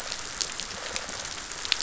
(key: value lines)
label: biophony
recorder: SoundTrap 500